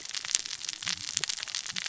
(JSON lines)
{"label": "biophony, cascading saw", "recorder": "SoundTrap 600 or HydroMoth"}